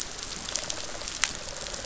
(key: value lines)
label: biophony
recorder: SoundTrap 500